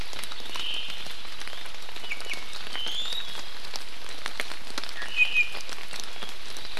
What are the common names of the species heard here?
Hawaii Creeper, Omao, Iiwi